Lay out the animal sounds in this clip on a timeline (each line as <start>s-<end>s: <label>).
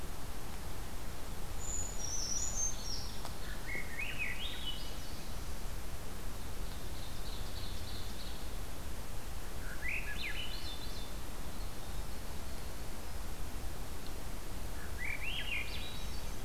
1.6s-3.3s: Brown Creeper (Certhia americana)
2.3s-3.8s: Ovenbird (Seiurus aurocapilla)
3.4s-5.5s: Swainson's Thrush (Catharus ustulatus)
6.6s-8.5s: Ovenbird (Seiurus aurocapilla)
9.6s-11.1s: Swainson's Thrush (Catharus ustulatus)
11.3s-13.4s: Winter Wren (Troglodytes hiemalis)
14.7s-16.4s: Swainson's Thrush (Catharus ustulatus)